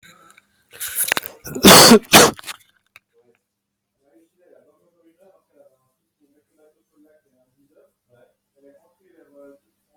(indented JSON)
{
  "expert_labels": [
    {
      "quality": "ok",
      "cough_type": "dry",
      "dyspnea": false,
      "wheezing": false,
      "stridor": false,
      "choking": false,
      "congestion": false,
      "nothing": true,
      "diagnosis": "upper respiratory tract infection",
      "severity": "mild"
    }
  ]
}